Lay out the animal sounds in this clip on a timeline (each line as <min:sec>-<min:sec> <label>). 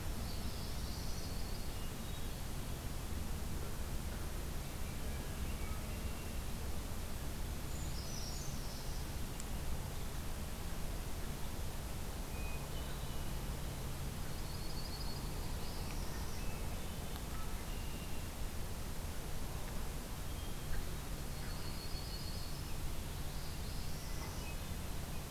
0:00.0-0:01.2 Eastern Wood-Pewee (Contopus virens)
0:00.2-0:01.4 Northern Parula (Setophaga americana)
0:01.7-0:02.4 Hermit Thrush (Catharus guttatus)
0:07.6-0:08.8 Brown Creeper (Certhia americana)
0:07.7-0:09.2 Northern Parula (Setophaga americana)
0:12.2-0:13.6 Hermit Thrush (Catharus guttatus)
0:13.9-0:15.3 Yellow-rumped Warbler (Setophaga coronata)
0:15.3-0:16.5 Northern Parula (Setophaga americana)
0:17.2-0:18.3 Red-winged Blackbird (Agelaius phoeniceus)
0:21.3-0:22.7 Yellow-rumped Warbler (Setophaga coronata)
0:23.1-0:24.5 Northern Parula (Setophaga americana)
0:23.8-0:24.9 Hermit Thrush (Catharus guttatus)